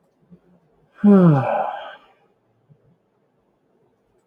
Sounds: Sigh